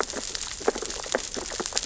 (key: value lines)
label: biophony, sea urchins (Echinidae)
recorder: SoundTrap 600 or HydroMoth